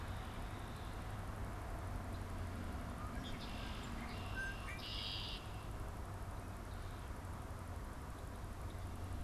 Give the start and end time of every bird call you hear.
2.9s-5.9s: Red-winged Blackbird (Agelaius phoeniceus)

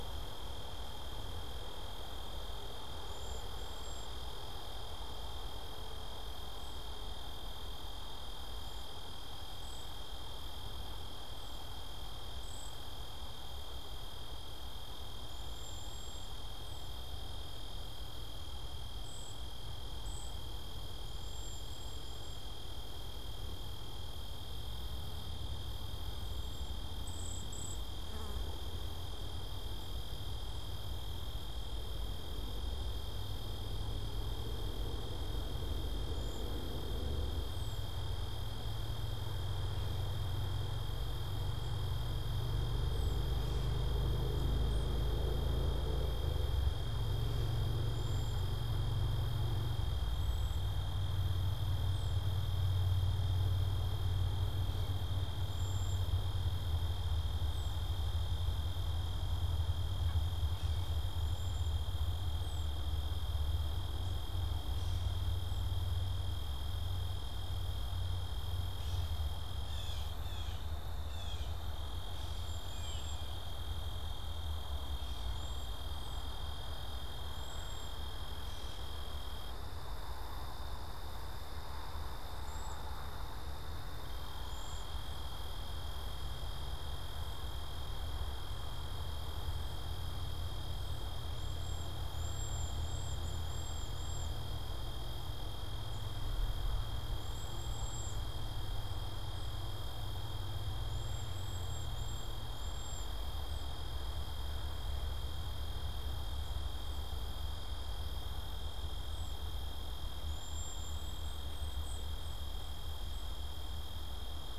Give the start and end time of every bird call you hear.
3.0s-4.2s: Cedar Waxwing (Bombycilla cedrorum)
8.6s-12.9s: Cedar Waxwing (Bombycilla cedrorum)
15.2s-22.5s: Cedar Waxwing (Bombycilla cedrorum)
26.2s-28.0s: Cedar Waxwing (Bombycilla cedrorum)
36.1s-36.7s: Cedar Waxwing (Bombycilla cedrorum)
37.4s-38.0s: unidentified bird
42.8s-43.4s: unidentified bird
47.8s-50.8s: Cedar Waxwing (Bombycilla cedrorum)
51.8s-52.3s: unidentified bird
55.4s-56.1s: Cedar Waxwing (Bombycilla cedrorum)
57.4s-57.9s: unidentified bird
61.0s-61.9s: Cedar Waxwing (Bombycilla cedrorum)
62.4s-62.8s: unidentified bird
64.7s-65.2s: Gray Catbird (Dumetella carolinensis)
68.7s-71.8s: Gray Catbird (Dumetella carolinensis)
72.2s-73.4s: Cedar Waxwing (Bombycilla cedrorum)
75.2s-75.8s: Cedar Waxwing (Bombycilla cedrorum)
82.3s-85.1s: Cedar Waxwing (Bombycilla cedrorum)
91.3s-94.5s: Cedar Waxwing (Bombycilla cedrorum)
97.1s-98.4s: Cedar Waxwing (Bombycilla cedrorum)
100.8s-103.3s: Cedar Waxwing (Bombycilla cedrorum)
110.2s-113.4s: Cedar Waxwing (Bombycilla cedrorum)

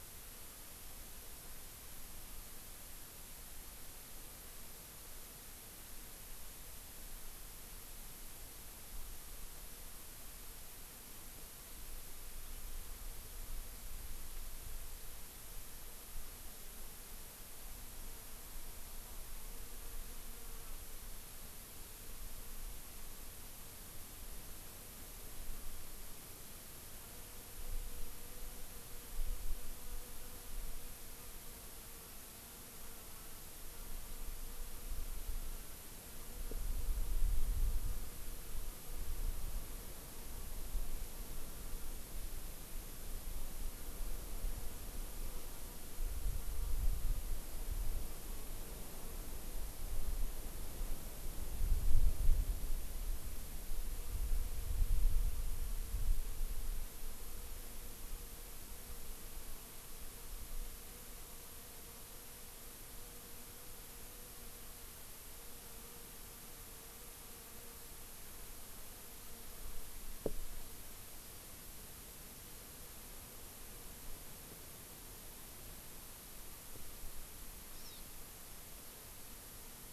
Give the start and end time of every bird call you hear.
77.8s-78.1s: Hawaii Amakihi (Chlorodrepanis virens)

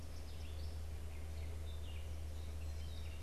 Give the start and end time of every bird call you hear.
0.0s-0.9s: Eastern Kingbird (Tyrannus tyrannus)
0.1s-3.2s: Gray Catbird (Dumetella carolinensis)

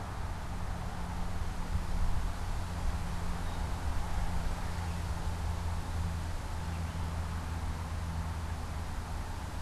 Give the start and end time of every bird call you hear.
3.1s-7.2s: Gray Catbird (Dumetella carolinensis)

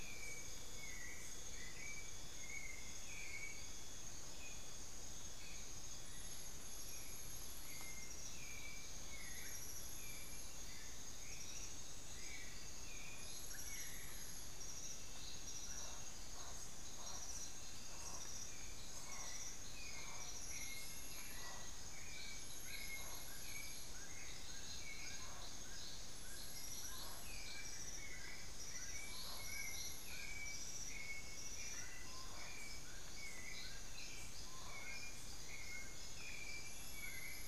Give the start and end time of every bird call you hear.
0.0s-2.1s: Amazonian Motmot (Momotus momota)
0.0s-37.5s: White-necked Thrush (Turdus albicollis)
13.6s-14.6s: Amazonian Barred-Woodcreeper (Dendrocolaptes certhia)
15.5s-35.4s: Spix's Guan (Penelope jacquacu)
21.8s-37.5s: Dull-capped Attila (Attila bolivianus)
27.5s-28.8s: Amazonian Barred-Woodcreeper (Dendrocolaptes certhia)

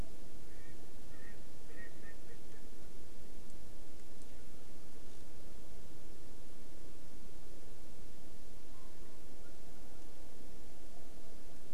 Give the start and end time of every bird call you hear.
0.5s-2.7s: Erckel's Francolin (Pternistis erckelii)

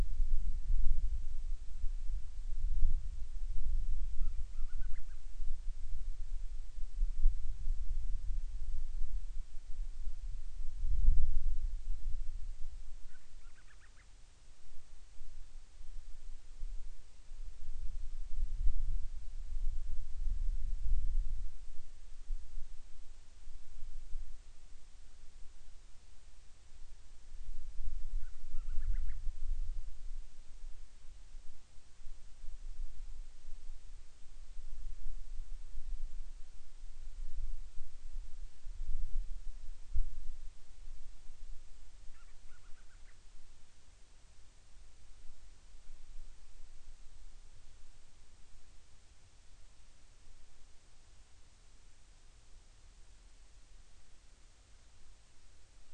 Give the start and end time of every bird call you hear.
4.0s-5.2s: Band-rumped Storm-Petrel (Hydrobates castro)
12.9s-14.1s: Band-rumped Storm-Petrel (Hydrobates castro)
28.1s-29.2s: Band-rumped Storm-Petrel (Hydrobates castro)
42.0s-43.2s: Band-rumped Storm-Petrel (Hydrobates castro)

